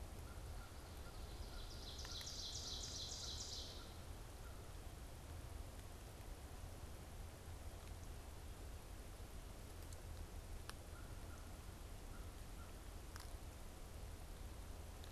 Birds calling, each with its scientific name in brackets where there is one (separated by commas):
Ovenbird (Seiurus aurocapilla), American Crow (Corvus brachyrhynchos)